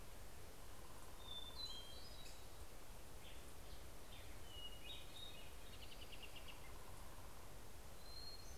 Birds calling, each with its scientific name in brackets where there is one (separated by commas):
Black-headed Grosbeak (Pheucticus melanocephalus), Hermit Thrush (Catharus guttatus), American Robin (Turdus migratorius)